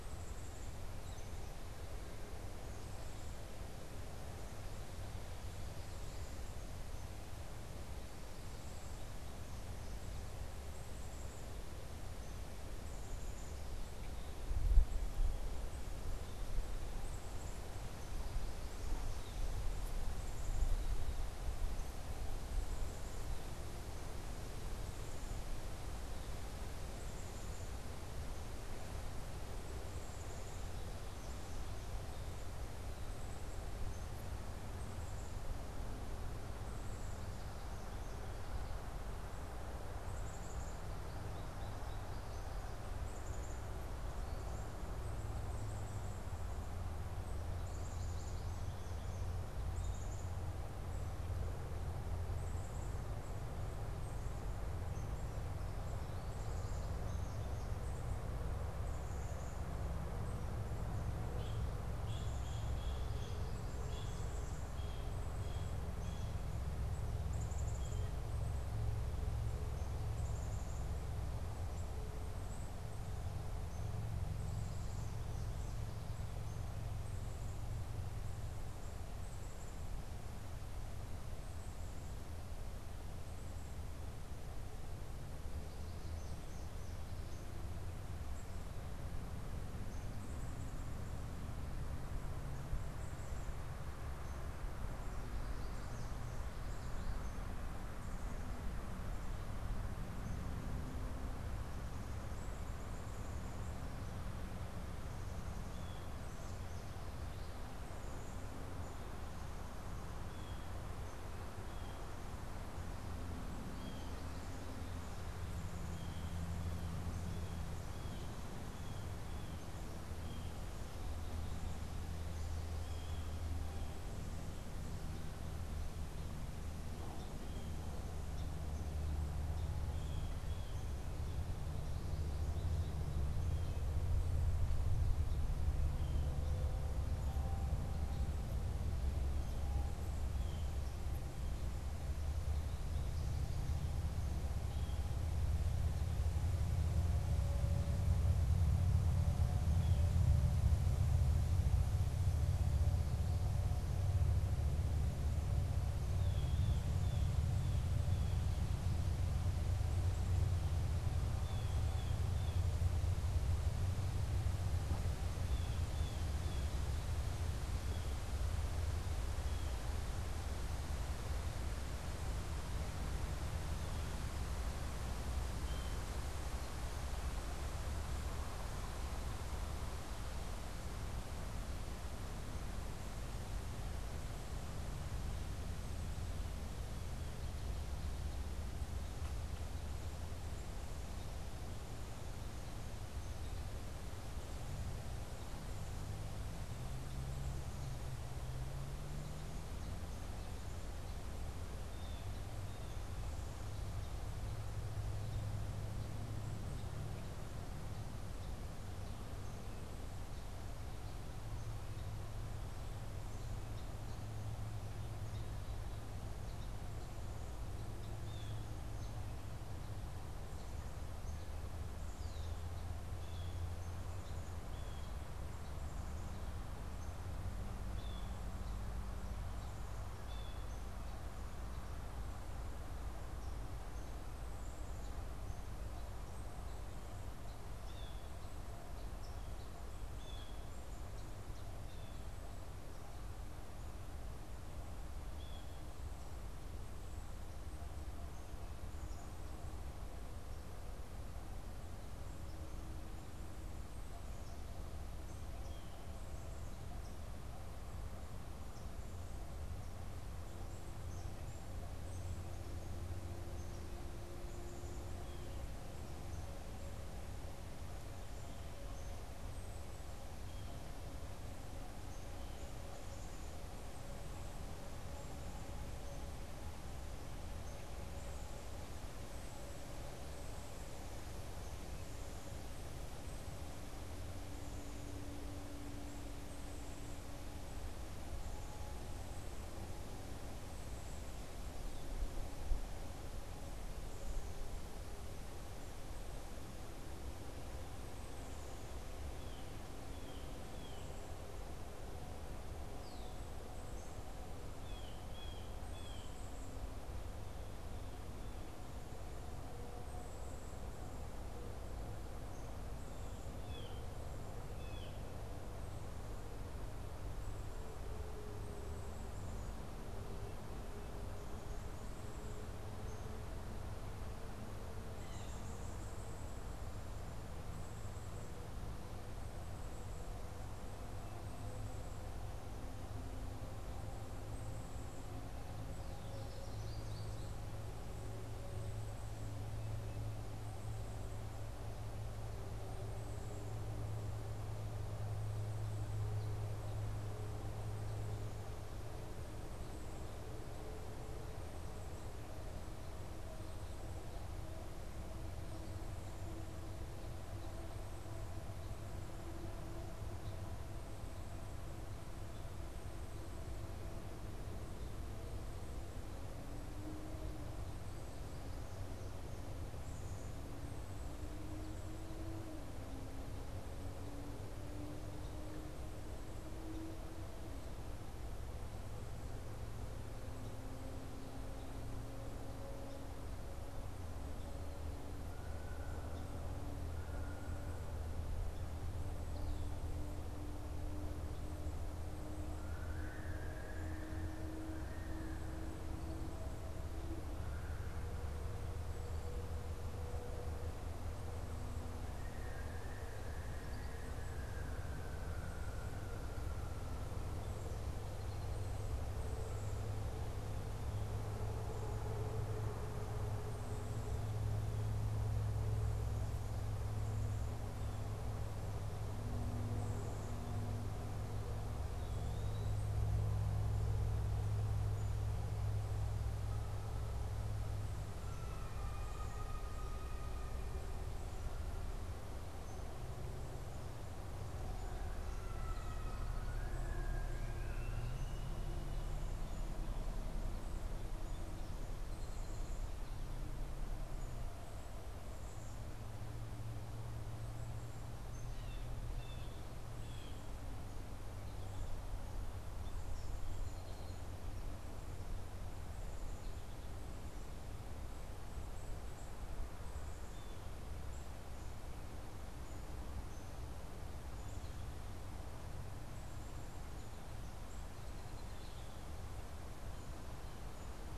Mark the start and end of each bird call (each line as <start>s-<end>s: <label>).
0.0s-109.4s: Black-capped Chickadee (Poecile atricapillus)
41.1s-42.5s: American Goldfinch (Spinus tristis)
61.2s-68.3s: Blue Jay (Cyanocitta cristata)
110.2s-131.0s: Blue Jay (Cyanocitta cristata)
115.0s-134.3s: Black-capped Chickadee (Poecile atricapillus)
135.8s-136.3s: Blue Jay (Cyanocitta cristata)
140.0s-145.4s: Blue Jay (Cyanocitta cristata)
149.7s-150.1s: Blue Jay (Cyanocitta cristata)
156.1s-169.8s: Blue Jay (Cyanocitta cristata)
159.6s-160.6s: Black-capped Chickadee (Poecile atricapillus)
175.5s-176.2s: Blue Jay (Cyanocitta cristata)
201.8s-203.0s: Blue Jay (Cyanocitta cristata)
218.0s-230.8s: Blue Jay (Cyanocitta cristata)
222.0s-222.7s: Red-winged Blackbird (Agelaius phoeniceus)
237.7s-246.0s: Blue Jay (Cyanocitta cristata)
256.8s-259.0s: unidentified bird
260.4s-265.2s: Black-capped Chickadee (Poecile atricapillus)
265.1s-265.7s: Blue Jay (Cyanocitta cristata)
269.5s-299.1s: Black-capped Chickadee (Poecile atricapillus)
270.2s-272.7s: Blue Jay (Cyanocitta cristata)
299.4s-306.5s: Blue Jay (Cyanocitta cristata)
300.8s-311.5s: Black-capped Chickadee (Poecile atricapillus)
302.9s-303.4s: Red-winged Blackbird (Agelaius phoeniceus)
313.5s-314.0s: Blue Jay (Cyanocitta cristata)
314.7s-315.2s: Blue Jay (Cyanocitta cristata)
318.8s-344.1s: Black-capped Chickadee (Poecile atricapillus)
325.1s-325.5s: Blue Jay (Cyanocitta cristata)
336.2s-337.6s: American Goldfinch (Spinus tristis)
419.8s-420.8s: Black-capped Chickadee (Poecile atricapillus)
421.9s-423.0s: Eastern Wood-Pewee (Contopus virens)
438.1s-448.7s: Black-capped Chickadee (Poecile atricapillus)
442.2s-443.3s: Song Sparrow (Melospiza melodia)
448.6s-450.8s: Blue Jay (Cyanocitta cristata)
452.9s-454.4s: Song Sparrow (Melospiza melodia)
461.0s-471.3s: Black-capped Chickadee (Poecile atricapillus)
468.2s-469.2s: American Goldfinch (Spinus tristis)